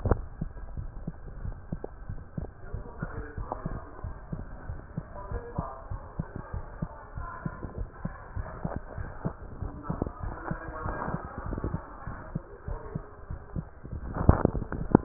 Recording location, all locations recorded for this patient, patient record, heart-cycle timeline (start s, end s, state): tricuspid valve (TV)
aortic valve (AV)+pulmonary valve (PV)+tricuspid valve (TV)+mitral valve (MV)
#Age: Child
#Sex: Male
#Height: 105.0 cm
#Weight: 16.4 kg
#Pregnancy status: False
#Murmur: Absent
#Murmur locations: nan
#Most audible location: nan
#Systolic murmur timing: nan
#Systolic murmur shape: nan
#Systolic murmur grading: nan
#Systolic murmur pitch: nan
#Systolic murmur quality: nan
#Diastolic murmur timing: nan
#Diastolic murmur shape: nan
#Diastolic murmur grading: nan
#Diastolic murmur pitch: nan
#Diastolic murmur quality: nan
#Outcome: Normal
#Campaign: 2015 screening campaign
0.00	1.45	unannotated
1.45	1.49	S1
1.50	1.72	systole
1.72	1.76	S2
1.76	2.08	diastole
2.08	2.14	S1
2.14	2.37	systole
2.37	2.42	S2
2.42	2.74	diastole
2.74	2.79	S1
2.79	3.02	systole
3.02	3.06	S2
3.06	3.38	diastole
3.38	3.44	S1
3.44	3.65	systole
3.65	3.69	S2
3.69	4.04	diastole
4.04	4.10	S1
4.10	4.32	systole
4.32	4.37	S2
4.37	4.68	diastole
4.68	4.74	S1
4.74	4.97	systole
4.97	5.02	S2
5.02	5.31	diastole
5.31	5.39	S1
5.39	5.58	systole
5.58	5.62	S2
5.62	5.90	diastole
5.90	5.97	S1
5.97	6.18	systole
6.18	6.23	S2
6.23	6.53	diastole
6.53	6.61	S1
6.61	6.82	systole
6.82	6.87	S2
6.87	7.17	diastole
7.17	7.24	S1
7.24	7.45	systole
7.45	7.49	S2
7.49	7.79	diastole
7.79	7.85	S1
7.85	8.05	systole
8.05	8.09	S2
8.09	8.36	diastole
8.36	8.41	S1
8.41	8.64	systole
8.64	8.67	S2
8.67	8.98	diastole
8.98	9.02	S1
9.02	9.25	systole
9.25	9.28	S2
9.28	9.61	diastole
9.61	15.04	unannotated